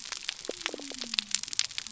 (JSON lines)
{"label": "biophony", "recorder": "SoundTrap 300"}